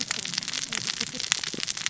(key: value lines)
label: biophony, cascading saw
recorder: SoundTrap 600 or HydroMoth